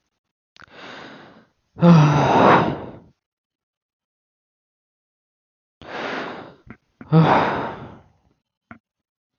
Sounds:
Sigh